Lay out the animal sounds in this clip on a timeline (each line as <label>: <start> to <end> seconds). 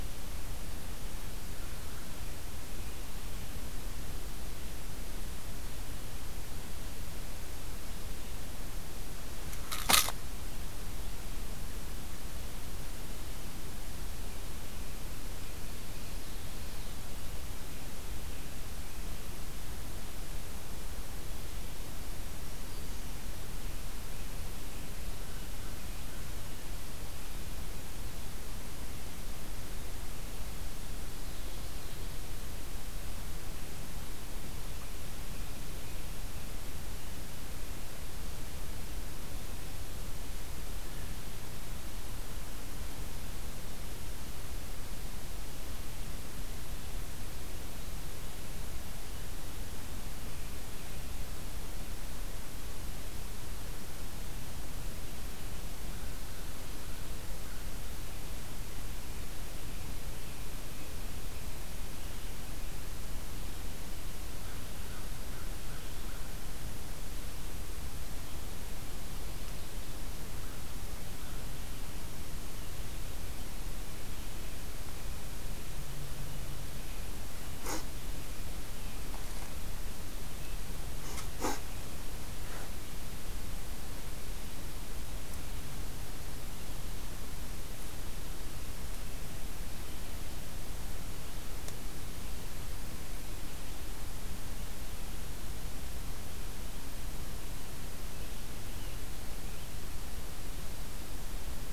American Crow (Corvus brachyrhynchos): 25.1 to 26.6 seconds
American Crow (Corvus brachyrhynchos): 55.8 to 58.1 seconds
American Crow (Corvus brachyrhynchos): 64.4 to 66.5 seconds
American Crow (Corvus brachyrhynchos): 70.3 to 71.5 seconds